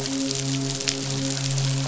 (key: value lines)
label: biophony, midshipman
recorder: SoundTrap 500